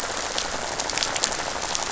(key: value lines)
label: biophony, rattle
recorder: SoundTrap 500